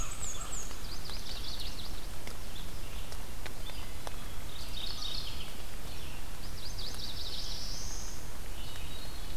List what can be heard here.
American Crow, Black-and-white Warbler, Red-eyed Vireo, Yellow-rumped Warbler, Mourning Warbler, Black-throated Blue Warbler, Hermit Thrush